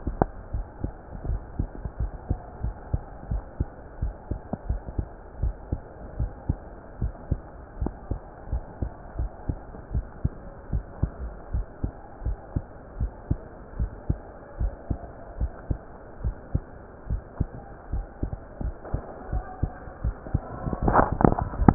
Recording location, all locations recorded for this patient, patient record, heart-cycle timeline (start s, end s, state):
mitral valve (MV)
aortic valve (AV)+pulmonary valve (PV)+tricuspid valve (TV)+mitral valve (MV)
#Age: Adolescent
#Sex: Male
#Height: 171.0 cm
#Weight: 50.2 kg
#Pregnancy status: False
#Murmur: Absent
#Murmur locations: nan
#Most audible location: nan
#Systolic murmur timing: nan
#Systolic murmur shape: nan
#Systolic murmur grading: nan
#Systolic murmur pitch: nan
#Systolic murmur quality: nan
#Diastolic murmur timing: nan
#Diastolic murmur shape: nan
#Diastolic murmur grading: nan
#Diastolic murmur pitch: nan
#Diastolic murmur quality: nan
#Outcome: Normal
#Campaign: 2015 screening campaign
0.00	5.37	unannotated
5.37	5.54	S1
5.54	5.70	systole
5.70	5.80	S2
5.80	6.16	diastole
6.16	6.30	S1
6.30	6.46	systole
6.46	6.60	S2
6.60	7.00	diastole
7.00	7.12	S1
7.12	7.30	systole
7.30	7.40	S2
7.40	7.80	diastole
7.80	7.94	S1
7.94	8.08	systole
8.08	8.20	S2
8.20	8.52	diastole
8.52	8.64	S1
8.64	8.80	systole
8.80	8.90	S2
8.90	9.20	diastole
9.20	9.32	S1
9.32	9.48	systole
9.48	9.58	S2
9.58	9.92	diastole
9.92	10.06	S1
10.06	10.22	systole
10.22	10.34	S2
10.34	10.72	diastole
10.72	10.84	S1
10.84	10.98	systole
10.98	11.12	S2
11.12	11.52	diastole
11.52	11.66	S1
11.66	11.82	systole
11.82	11.92	S2
11.92	12.24	diastole
12.24	12.38	S1
12.38	12.54	systole
12.54	12.64	S2
12.64	12.98	diastole
12.98	13.12	S1
13.12	13.26	systole
13.26	13.40	S2
13.40	13.78	diastole
13.78	13.92	S1
13.92	14.08	systole
14.08	14.18	S2
14.18	14.60	diastole
14.60	14.74	S1
14.74	14.86	systole
14.86	14.98	S2
14.98	15.38	diastole
15.38	15.52	S1
15.52	15.68	systole
15.68	15.84	S2
15.84	16.24	diastole
16.24	16.36	S1
16.36	16.50	systole
16.50	16.64	S2
16.64	17.10	diastole
17.10	17.22	S1
17.22	17.36	systole
17.36	17.52	S2
17.52	17.92	diastole
17.92	18.06	S1
18.06	18.18	systole
18.18	18.30	S2
18.30	18.58	diastole
18.58	18.76	S1
18.76	18.92	systole
18.92	19.02	S2
19.02	19.30	diastole
19.30	19.44	S1
19.44	19.58	systole
19.58	19.70	S2
19.70	20.01	diastole
20.01	20.13	S1
20.13	21.74	unannotated